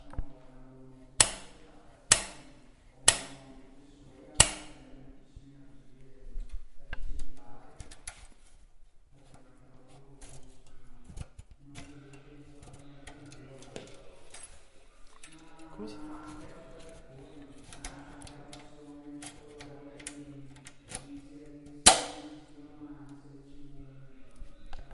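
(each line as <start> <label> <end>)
0.0 Banging sounds occur repeatedly, similar to a lighter being lit. 5.2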